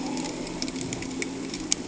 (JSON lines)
{"label": "anthrophony, boat engine", "recorder": "HydroMoth"}